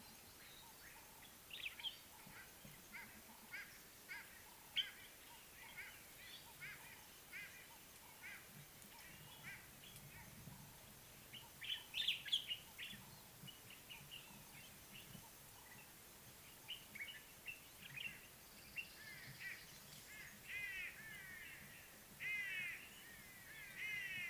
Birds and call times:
White-bellied Go-away-bird (Corythaixoides leucogaster): 0:04.2, 0:22.6
Common Bulbul (Pycnonotus barbatus): 0:12.2

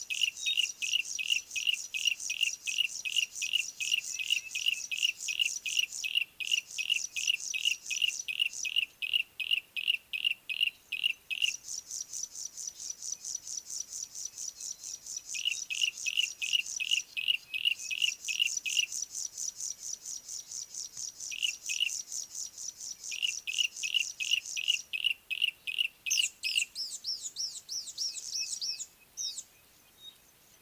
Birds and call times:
Yellow-breasted Apalis (Apalis flavida): 0:01.3, 0:09.5, 0:17.3, 0:21.4, 0:23.9, 0:25.8
Pale Prinia (Prinia somalica): 0:05.5, 0:13.1, 0:14.5, 0:20.3, 0:22.7
Red-fronted Prinia (Prinia rufifrons): 0:27.5
Pygmy Batis (Batis perkeo): 0:29.3

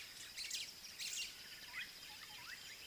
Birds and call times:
Slate-colored Boubou (Laniarius funebris): 0:01.8

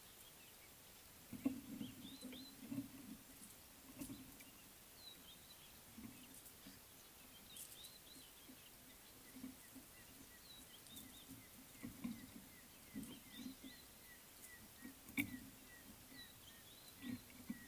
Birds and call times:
Red-backed Scrub-Robin (Cercotrichas leucophrys): 0:02.1, 0:16.4
African Gray Hornbill (Lophoceros nasutus): 0:15.7

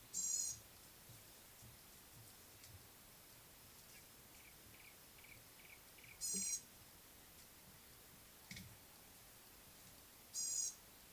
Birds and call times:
Yellow-breasted Apalis (Apalis flavida): 0:05.3
Gray-backed Camaroptera (Camaroptera brevicaudata): 0:06.4

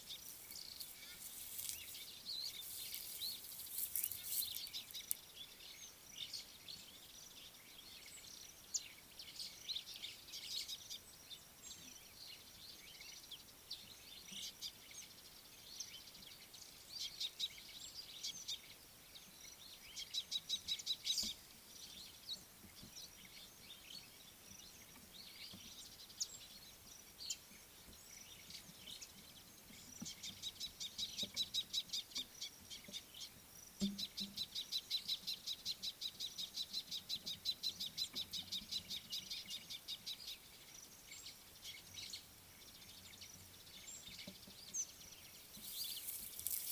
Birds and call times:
Scarlet-chested Sunbird (Chalcomitra senegalensis): 0:20.5, 0:37.1
White-browed Sparrow-Weaver (Plocepasser mahali): 0:21.2, 0:42.0

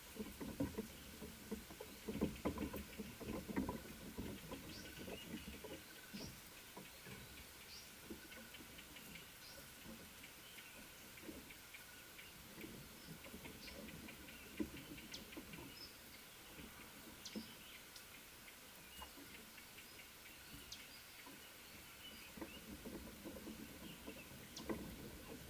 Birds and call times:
African Paradise-Flycatcher (Terpsiphone viridis): 0:06.2

